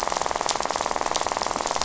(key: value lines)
label: biophony, rattle
recorder: SoundTrap 500